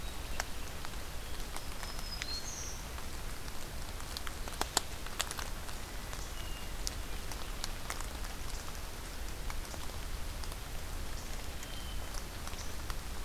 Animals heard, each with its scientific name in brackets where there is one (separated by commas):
Hermit Thrush (Catharus guttatus), Black-throated Green Warbler (Setophaga virens)